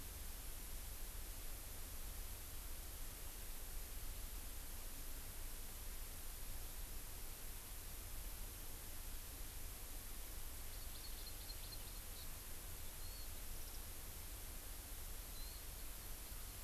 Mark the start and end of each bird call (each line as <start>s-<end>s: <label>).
10.7s-12.3s: Hawaii Amakihi (Chlorodrepanis virens)
13.0s-13.2s: Hawaii Amakihi (Chlorodrepanis virens)
15.3s-15.6s: Hawaii Amakihi (Chlorodrepanis virens)